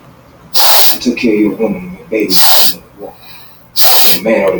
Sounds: Sniff